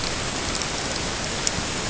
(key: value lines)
label: ambient
recorder: HydroMoth